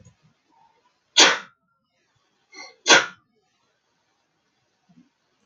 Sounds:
Sneeze